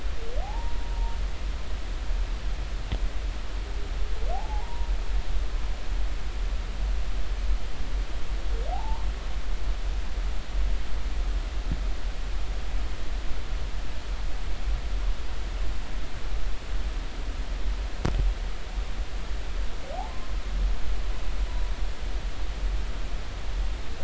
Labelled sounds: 0.4	1.2	humpback whale, 0.80 to 1.0 kHz
4.3	4.9	humpback whale, 0.80 to 0.99 kHz
8.7	9.1	humpback whale, 0.80 to 1.1 kHz

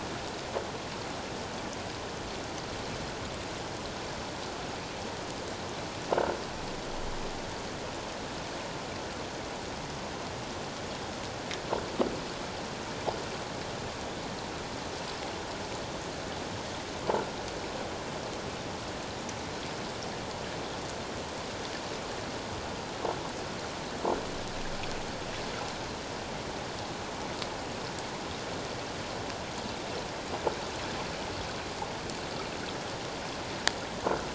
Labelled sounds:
34.0	34.3	croaking sound likely from a nearby submerged object, 1.2 to 1.5 kHz

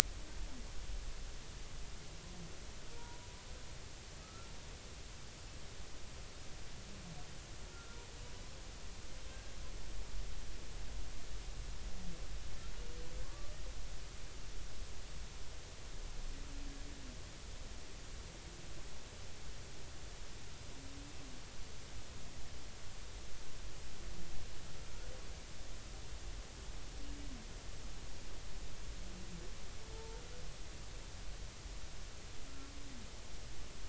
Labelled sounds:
3.0	4.5	humpback whale, 0.90 to 1.4 kHz
7.7	8.0	humpback whale, 1.3 to 1.5 kHz
13.2	13.5	humpback whale, 1.0 to 1.2 kHz
29.9	30.2	humpback whale, 0.86 to 0.93 kHz

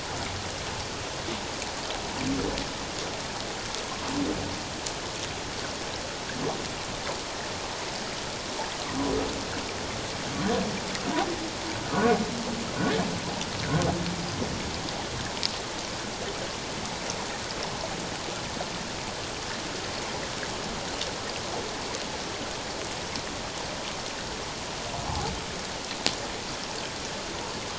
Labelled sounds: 25.1	25.3	humpback whale, 0.78 to 1.1 kHz

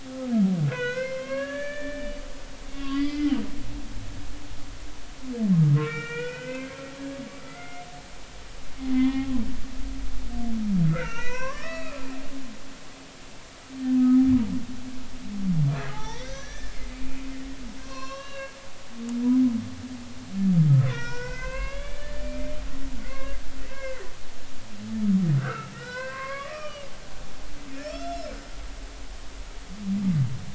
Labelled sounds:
0.7	2.1	humpback whale, 0.93 to 6.7 kHz
2.7	3.3	humpback whale, 1.0 to 5.1 kHz
5.7	6.8	humpback whale, 0.90 to 4.7 kHz
7.4	7.8	humpback whale, 1.3 to 2.2 kHz
8.9	9.3	humpback whale, 0.80 to 3.0 kHz
10.9	12.0	humpback whale, 0.86 to 5.9 kHz
15.8	16.8	humpback whale, 0.80 to 6.1 kHz
17.8	18.5	humpback whale, 0.99 to 6.0 kHz
20.8	22.4	humpback whale, 0.90 to 5.9 kHz
23.0	24.1	humpback whale, 1.0 to 2.2 kHz
25.4	26.9	humpback whale, 0.93 to 4.9 kHz
27.9	28.4	humpback whale, 1.2 to 5.6 kHz

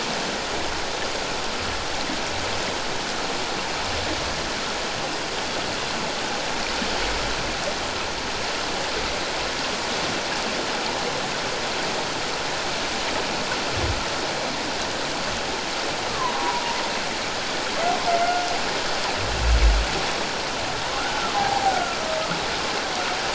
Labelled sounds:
16.1	16.6	humpback whale, 0.91 to 1.2 kHz
21.3	22.0	humpback whale, 0.78 to 1.5 kHz

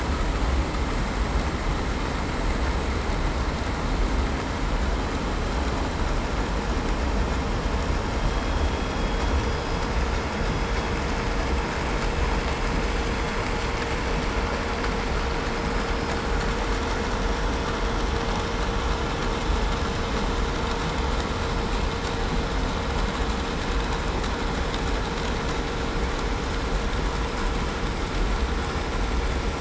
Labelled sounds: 9.4	9.8	vessel noise, 4.97 to 5.01 kHz

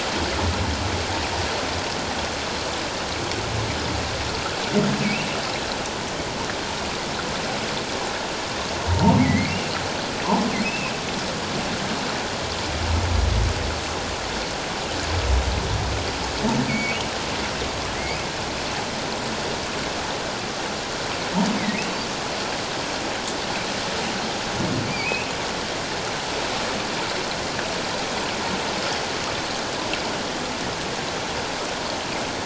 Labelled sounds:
8.9	9.6	humpback whale, 0.84 to 2.4 kHz
10.6	10.9	humpback whale, 2.5 to 2.8 kHz
16.7	17.0	humpback whale, 2.1 to 2.5 kHz
21.6	21.8	humpback whale, 1.8 to 2.3 kHz
24.9	25.3	humpback whale, 2.2 to 2.8 kHz

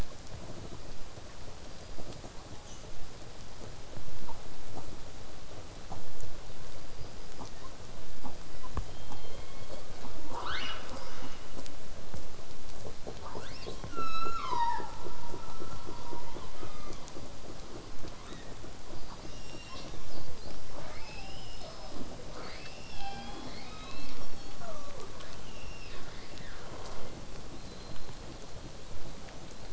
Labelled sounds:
1.6	2.2	killer whale, southern resident, 4.6 to 5.0 kHz
2.6	2.8	killer whale, southern resident, 2.9 to 8.0 kHz
6.6	7.4	killer whale, southern resident, 4.6 to 5.1 kHz
10.3	11.4	killer whale, southern resident, 0.44 to 6.7 kHz
13.1	13.8	killer whale, southern resident, 0.75 to 6.2 kHz
16.3	17.1	killer whale, southern resident, 0.84 to 5.2 kHz
18.2	18.5	killer whale, southern resident, 0.75 to 4.3 kHz
18.9	19.9	killer whale, southern resident, 0.98 to 7.8 kHz
22.3	26.6	killer whale, southern resident, 0.18 to 8.0 kHz
27.6	28.2	killer whale, southern resident, whistle, 3.8 to 4.5 kHz
29.5	29.7	killer whale, southern resident, whistle, 3.6 to 8.0 kHz

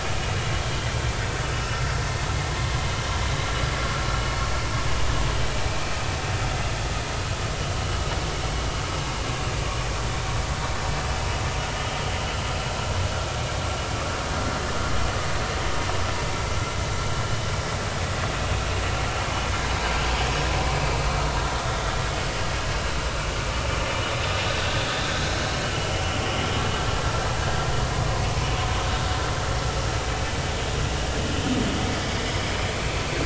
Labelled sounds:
5.7	5.9	vessel noise, 2.3 to 2.7 kHz

